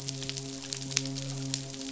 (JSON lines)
{"label": "biophony, midshipman", "recorder": "SoundTrap 500"}